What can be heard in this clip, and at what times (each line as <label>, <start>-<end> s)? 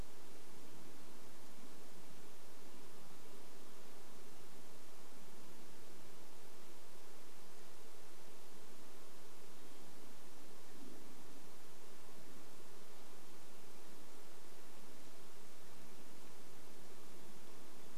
Red-breasted Nuthatch song, 2-6 s
Red-breasted Nuthatch song, 8-10 s